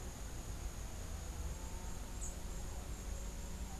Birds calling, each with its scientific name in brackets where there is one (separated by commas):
Rufous-capped Warbler (Basileuterus rufifrons)